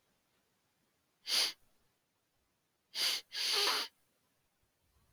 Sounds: Sniff